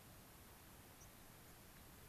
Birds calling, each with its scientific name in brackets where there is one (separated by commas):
unidentified bird